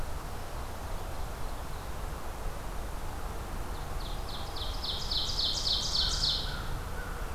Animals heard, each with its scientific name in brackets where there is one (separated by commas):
Ovenbird (Seiurus aurocapilla)